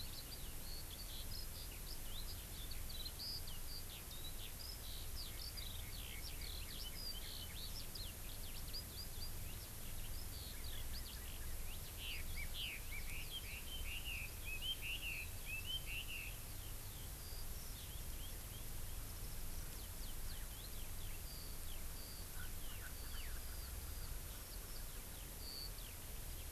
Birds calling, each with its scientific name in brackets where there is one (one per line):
Eurasian Skylark (Alauda arvensis)
Erckel's Francolin (Pternistis erckelii)
Red-billed Leiothrix (Leiothrix lutea)